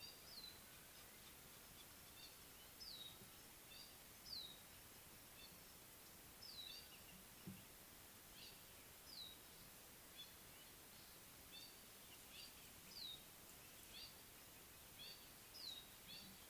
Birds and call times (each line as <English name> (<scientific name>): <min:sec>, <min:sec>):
Gray-backed Camaroptera (Camaroptera brevicaudata): 0:11.6